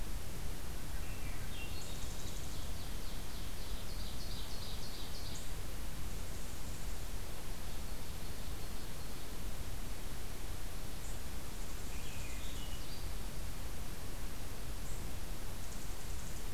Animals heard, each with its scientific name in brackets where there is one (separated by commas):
Swainson's Thrush (Catharus ustulatus), unidentified call, Ovenbird (Seiurus aurocapilla)